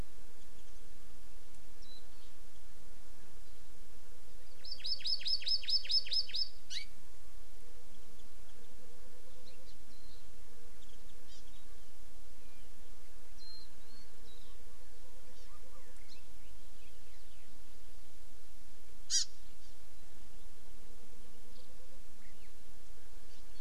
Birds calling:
Hawaii Amakihi (Chlorodrepanis virens), Warbling White-eye (Zosterops japonicus)

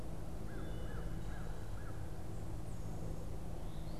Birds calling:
Veery (Catharus fuscescens), American Crow (Corvus brachyrhynchos)

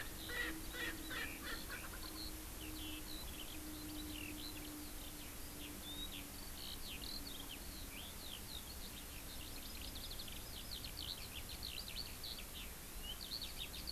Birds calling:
Erckel's Francolin (Pternistis erckelii), Eurasian Skylark (Alauda arvensis)

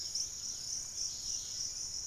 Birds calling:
Dusky-capped Greenlet (Pachysylvia hypoxantha), Fasciated Antshrike (Cymbilaimus lineatus), Hauxwell's Thrush (Turdus hauxwelli)

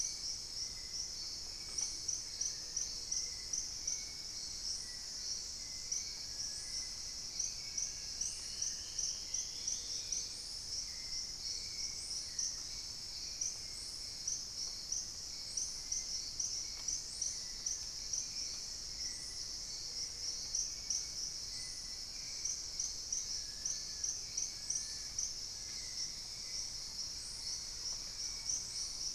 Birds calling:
Hauxwell's Thrush (Turdus hauxwelli), Thrush-like Wren (Campylorhynchus turdinus), Plain-winged Antshrike (Thamnophilus schistaceus), Long-billed Woodcreeper (Nasica longirostris), Dusky-throated Antshrike (Thamnomanes ardesiacus), Dusky-capped Greenlet (Pachysylvia hypoxantha)

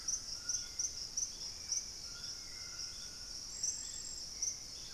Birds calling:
Purple-throated Fruitcrow (Querula purpurata), Hauxwell's Thrush (Turdus hauxwelli), White-throated Toucan (Ramphastos tucanus)

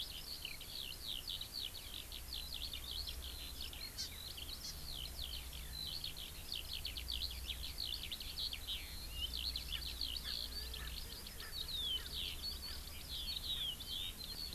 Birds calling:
Eurasian Skylark (Alauda arvensis), Hawaii Amakihi (Chlorodrepanis virens), Erckel's Francolin (Pternistis erckelii)

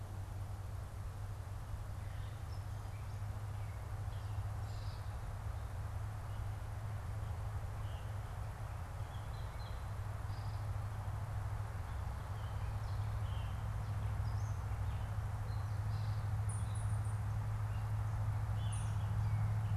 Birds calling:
Gray Catbird (Dumetella carolinensis), Veery (Catharus fuscescens), unidentified bird

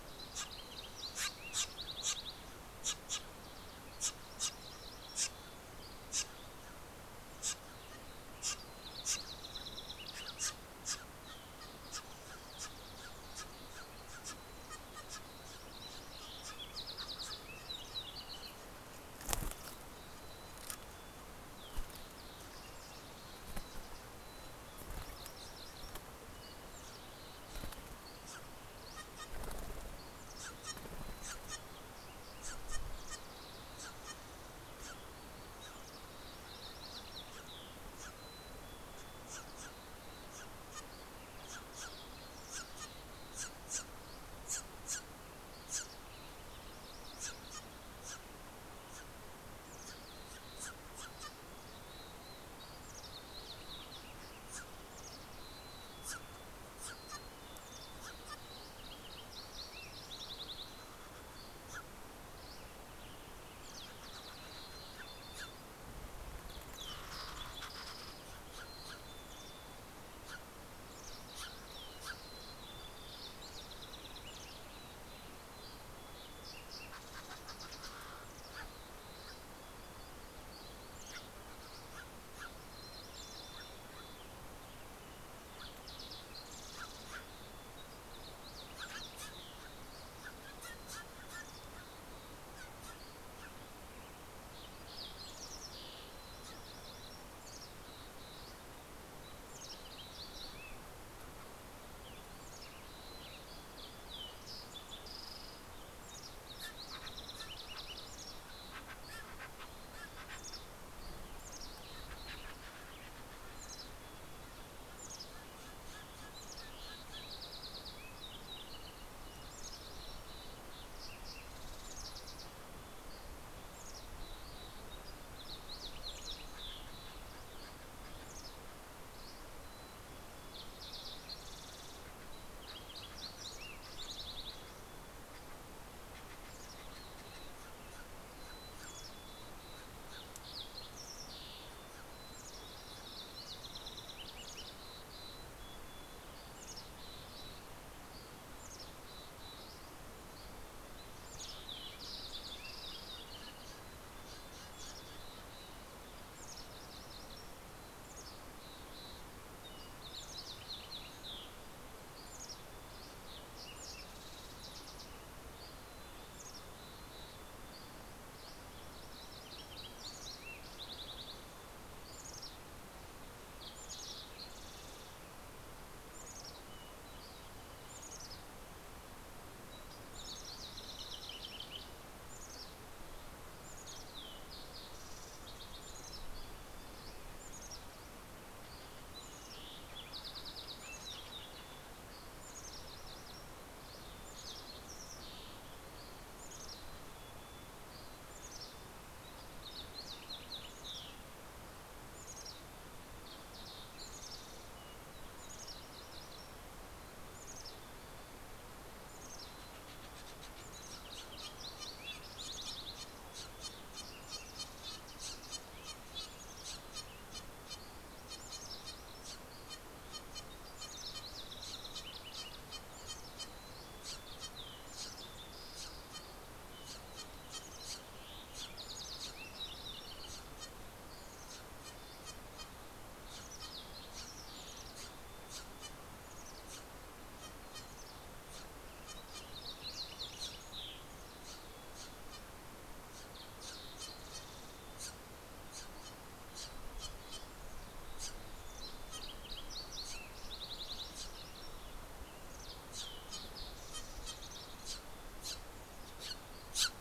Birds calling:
Steller's Jay (Cyanocitta stelleri), Fox Sparrow (Passerella iliaca), Green-tailed Towhee (Pipilo chlorurus), Mountain Chickadee (Poecile gambeli), White-crowned Sparrow (Zonotrichia leucophrys), MacGillivray's Warbler (Geothlypis tolmiei), Western Tanager (Piranga ludoviciana), Dusky Flycatcher (Empidonax oberholseri)

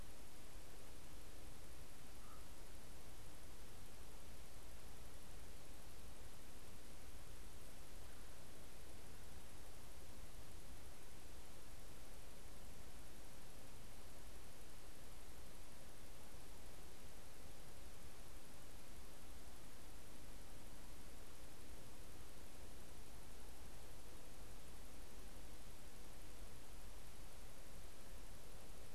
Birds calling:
Canada Goose (Branta canadensis)

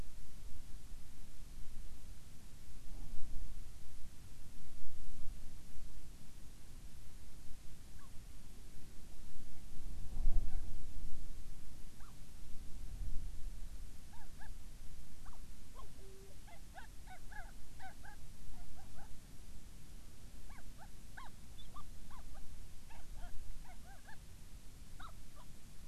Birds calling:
Hawaiian Petrel (Pterodroma sandwichensis)

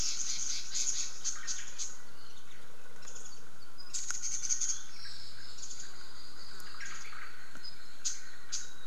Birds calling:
Red-billed Leiothrix (Leiothrix lutea), Omao (Myadestes obscurus), Warbling White-eye (Zosterops japonicus)

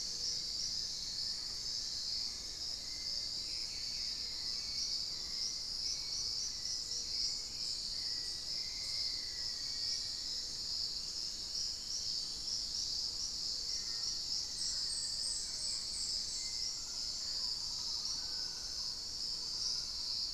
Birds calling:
Mealy Parrot (Amazona farinosa), Hauxwell's Thrush (Turdus hauxwelli), Black-faced Antthrush (Formicarius analis), Fasciated Antshrike (Cymbilaimus lineatus), Dusky-throated Antshrike (Thamnomanes ardesiacus), unidentified bird

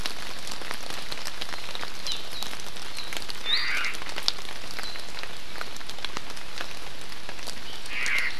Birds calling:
Omao (Myadestes obscurus), Warbling White-eye (Zosterops japonicus), Hawaii Amakihi (Chlorodrepanis virens)

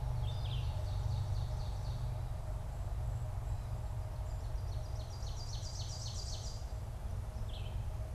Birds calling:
Ovenbird (Seiurus aurocapilla), Red-eyed Vireo (Vireo olivaceus)

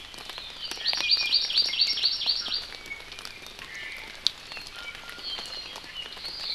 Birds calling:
Apapane (Himatione sanguinea), Iiwi (Drepanis coccinea), Hawaii Amakihi (Chlorodrepanis virens)

